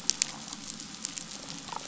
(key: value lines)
label: biophony
recorder: SoundTrap 500